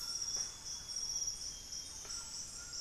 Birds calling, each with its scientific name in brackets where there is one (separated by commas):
Thrush-like Wren (Campylorhynchus turdinus), White-throated Toucan (Ramphastos tucanus), Golden-crowned Spadebill (Platyrinchus coronatus), Amazonian Grosbeak (Cyanoloxia rothschildii)